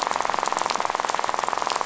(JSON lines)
{"label": "biophony, rattle", "recorder": "SoundTrap 500"}